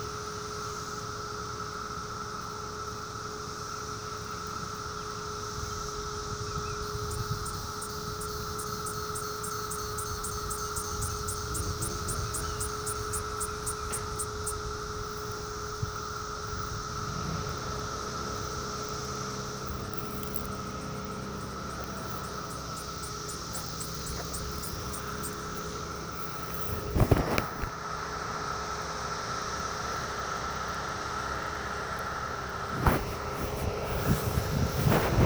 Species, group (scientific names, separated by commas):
Magicicada septendecula, Cicadidae